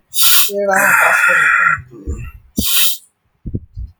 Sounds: Sniff